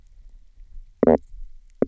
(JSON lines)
{"label": "biophony, stridulation", "recorder": "SoundTrap 300"}